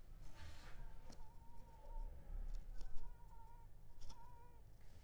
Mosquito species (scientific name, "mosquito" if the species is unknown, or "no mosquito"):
Culex pipiens complex